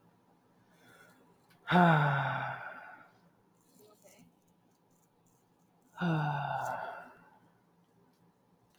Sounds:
Sigh